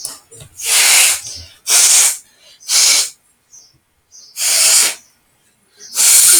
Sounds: Sneeze